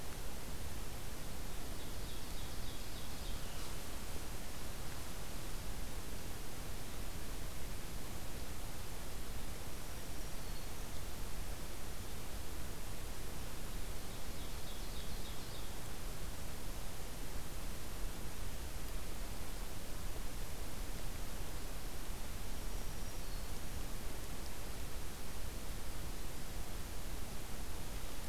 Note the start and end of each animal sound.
1.0s-3.7s: Ovenbird (Seiurus aurocapilla)
9.8s-11.1s: Black-throated Green Warbler (Setophaga virens)
14.0s-15.8s: Ovenbird (Seiurus aurocapilla)
22.5s-23.8s: Black-throated Green Warbler (Setophaga virens)

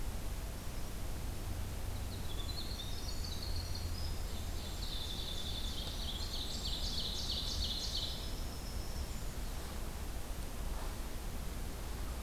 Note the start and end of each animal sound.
1.7s-9.5s: Winter Wren (Troglodytes hiemalis)
4.3s-8.5s: Ovenbird (Seiurus aurocapilla)

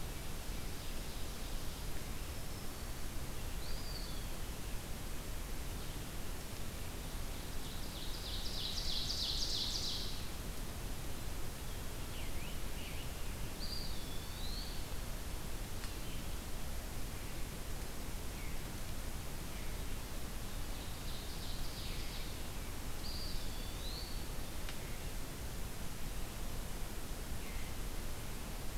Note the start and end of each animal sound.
1.8s-3.2s: Black-throated Green Warbler (Setophaga virens)
3.5s-4.6s: Eastern Wood-Pewee (Contopus virens)
7.1s-10.2s: Ovenbird (Seiurus aurocapilla)
11.7s-13.3s: Scarlet Tanager (Piranga olivacea)
13.5s-14.6s: Eastern Wood-Pewee (Contopus virens)
20.6s-22.4s: Ovenbird (Seiurus aurocapilla)
22.9s-24.4s: Eastern Wood-Pewee (Contopus virens)

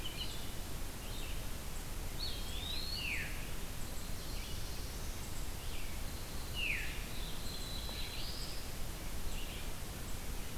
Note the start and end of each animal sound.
0.0s-10.6s: Red-eyed Vireo (Vireo olivaceus)
2.0s-3.1s: Eastern Wood-Pewee (Contopus virens)
2.9s-3.3s: Veery (Catharus fuscescens)
3.7s-5.4s: Black-throated Blue Warbler (Setophaga caerulescens)
6.5s-6.8s: Veery (Catharus fuscescens)
7.0s-8.9s: Black-throated Blue Warbler (Setophaga caerulescens)

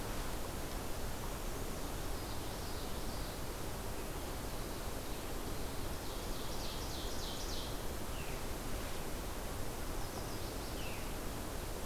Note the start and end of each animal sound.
1.8s-3.5s: Common Yellowthroat (Geothlypis trichas)
5.7s-7.7s: Ovenbird (Seiurus aurocapilla)
8.0s-8.4s: Veery (Catharus fuscescens)
9.8s-11.0s: Chestnut-sided Warbler (Setophaga pensylvanica)
10.7s-11.0s: Veery (Catharus fuscescens)

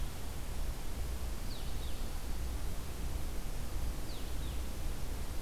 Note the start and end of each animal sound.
1.3s-5.4s: Blue-headed Vireo (Vireo solitarius)

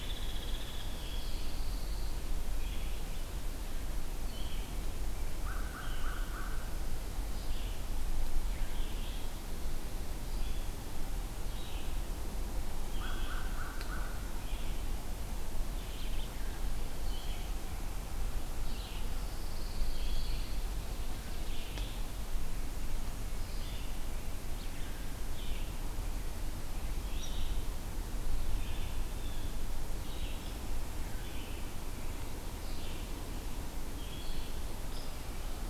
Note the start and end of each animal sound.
0.0s-1.2s: Hairy Woodpecker (Dryobates villosus)
0.0s-35.7s: Red-eyed Vireo (Vireo olivaceus)
0.9s-2.2s: Pine Warbler (Setophaga pinus)
5.3s-6.7s: American Crow (Corvus brachyrhynchos)
12.8s-14.3s: American Crow (Corvus brachyrhynchos)
19.0s-20.5s: Pine Warbler (Setophaga pinus)
27.2s-27.4s: Hairy Woodpecker (Dryobates villosus)
34.8s-35.2s: Hairy Woodpecker (Dryobates villosus)

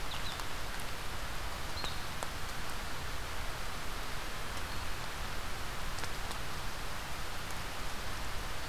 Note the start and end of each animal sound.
0.0s-8.7s: Blue-headed Vireo (Vireo solitarius)

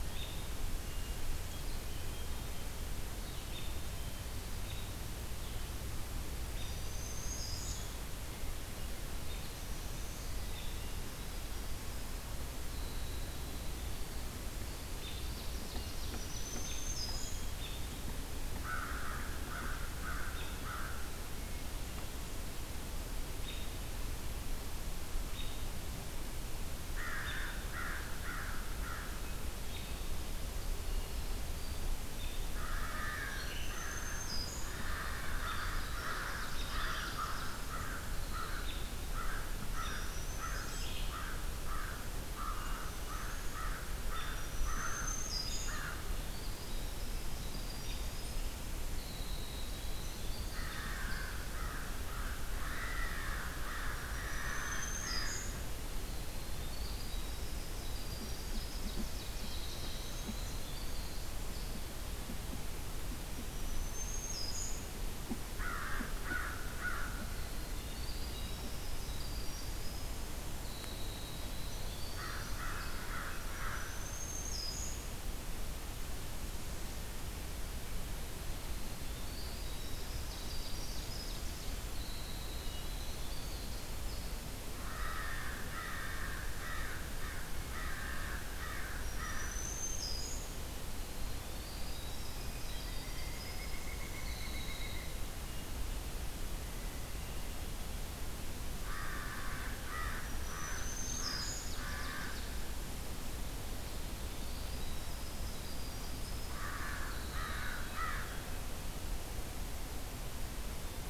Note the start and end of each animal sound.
0.0s-0.4s: American Robin (Turdus migratorius)
0.9s-2.5s: Hermit Thrush (Catharus guttatus)
3.5s-3.8s: American Robin (Turdus migratorius)
4.5s-4.9s: American Robin (Turdus migratorius)
6.4s-6.9s: American Robin (Turdus migratorius)
6.6s-7.9s: Black-throated Green Warbler (Setophaga virens)
7.7s-8.1s: American Robin (Turdus migratorius)
9.2s-9.6s: American Robin (Turdus migratorius)
9.3s-10.6s: Black-throated Green Warbler (Setophaga virens)
10.5s-10.8s: American Robin (Turdus migratorius)
11.1s-16.1s: Winter Wren (Troglodytes hiemalis)
15.0s-15.2s: American Robin (Turdus migratorius)
15.3s-16.9s: Ovenbird (Seiurus aurocapilla)
15.9s-17.6s: Black-throated Green Warbler (Setophaga virens)
16.6s-16.9s: American Robin (Turdus migratorius)
17.5s-17.9s: American Robin (Turdus migratorius)
18.5s-21.3s: American Crow (Corvus brachyrhynchos)
20.2s-20.7s: American Robin (Turdus migratorius)
23.4s-23.7s: American Robin (Turdus migratorius)
25.3s-25.6s: American Robin (Turdus migratorius)
26.8s-29.3s: American Crow (Corvus brachyrhynchos)
27.1s-27.6s: American Robin (Turdus migratorius)
29.6s-30.0s: American Robin (Turdus migratorius)
32.5s-46.4s: American Crow (Corvus brachyrhynchos)
33.2s-33.9s: Red-eyed Vireo (Vireo olivaceus)
33.3s-34.9s: Black-throated Green Warbler (Setophaga virens)
34.5s-39.2s: Winter Wren (Troglodytes hiemalis)
35.9s-37.6s: Ovenbird (Seiurus aurocapilla)
38.6s-38.8s: American Robin (Turdus migratorius)
39.5s-40.9s: unidentified call
40.6s-41.3s: Red-eyed Vireo (Vireo olivaceus)
42.6s-44.4s: American Robin (Turdus migratorius)
44.2s-46.0s: Black-throated Green Warbler (Setophaga virens)
46.2s-51.4s: Winter Wren (Troglodytes hiemalis)
50.4s-55.4s: American Crow (Corvus brachyrhynchos)
53.9s-55.7s: Black-throated Green Warbler (Setophaga virens)
56.1s-62.0s: Winter Wren (Troglodytes hiemalis)
58.1s-60.0s: Ovenbird (Seiurus aurocapilla)
63.3s-65.0s: Black-throated Green Warbler (Setophaga virens)
65.4s-67.5s: American Crow (Corvus brachyrhynchos)
67.0s-73.1s: Winter Wren (Troglodytes hiemalis)
71.9s-74.4s: American Crow (Corvus brachyrhynchos)
73.3s-75.1s: Black-throated Green Warbler (Setophaga virens)
78.1s-84.7s: Winter Wren (Troglodytes hiemalis)
80.1s-81.8s: Ovenbird (Seiurus aurocapilla)
84.6s-90.4s: American Crow (Corvus brachyrhynchos)
89.0s-90.6s: Black-throated Green Warbler (Setophaga virens)
91.1s-95.6s: Winter Wren (Troglodytes hiemalis)
93.0s-95.4s: Pileated Woodpecker (Dryocopus pileatus)
98.7s-102.8s: American Crow (Corvus brachyrhynchos)
100.0s-101.9s: Black-throated Green Warbler (Setophaga virens)
100.5s-102.6s: Ovenbird (Seiurus aurocapilla)
103.9s-108.5s: Winter Wren (Troglodytes hiemalis)
106.2s-108.6s: American Crow (Corvus brachyrhynchos)

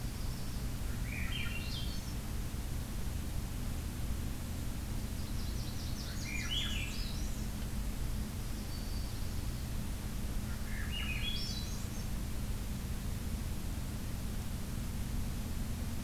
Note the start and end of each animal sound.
0.0s-0.7s: Yellow-rumped Warbler (Setophaga coronata)
0.9s-2.1s: Swainson's Thrush (Catharus ustulatus)
5.0s-7.0s: Blackburnian Warbler (Setophaga fusca)
6.0s-7.5s: Swainson's Thrush (Catharus ustulatus)
8.0s-9.3s: Black-throated Green Warbler (Setophaga virens)
10.4s-12.1s: Swainson's Thrush (Catharus ustulatus)

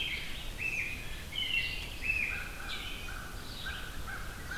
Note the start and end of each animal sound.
0.0s-1.3s: Mallard (Anas platyrhynchos)
0.0s-3.1s: American Robin (Turdus migratorius)
0.0s-4.6s: Red-eyed Vireo (Vireo olivaceus)
0.7s-0.8s: Eastern Kingbird (Tyrannus tyrannus)
2.1s-4.6s: American Crow (Corvus brachyrhynchos)

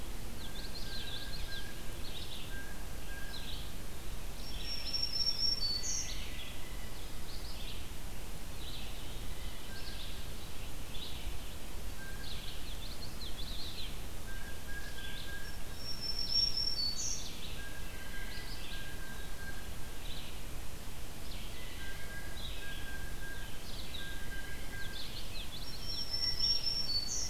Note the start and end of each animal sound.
0.0s-15.5s: Red-eyed Vireo (Vireo olivaceus)
0.1s-1.8s: Common Yellowthroat (Geothlypis trichas)
0.2s-1.7s: Blue Jay (Cyanocitta cristata)
2.4s-3.6s: Blue Jay (Cyanocitta cristata)
4.1s-6.6s: Black-throated Green Warbler (Setophaga virens)
5.6s-7.1s: Blue Jay (Cyanocitta cristata)
12.0s-14.5s: Common Yellowthroat (Geothlypis trichas)
14.2s-15.6s: Blue Jay (Cyanocitta cristata)
15.4s-17.6s: Black-throated Green Warbler (Setophaga virens)
16.1s-25.4s: Red-eyed Vireo (Vireo olivaceus)
17.5s-25.0s: Blue Jay (Cyanocitta cristata)
24.4s-26.4s: Common Yellowthroat (Geothlypis trichas)
25.3s-27.3s: Black-throated Green Warbler (Setophaga virens)

